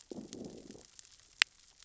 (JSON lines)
{"label": "biophony, growl", "recorder": "SoundTrap 600 or HydroMoth"}